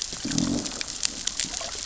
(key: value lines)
label: biophony, growl
recorder: SoundTrap 600 or HydroMoth